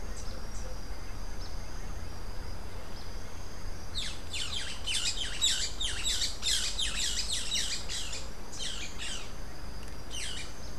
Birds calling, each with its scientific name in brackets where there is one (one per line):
Boat-billed Flycatcher (Megarynchus pitangua)